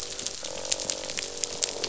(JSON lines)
{"label": "biophony, croak", "recorder": "SoundTrap 500"}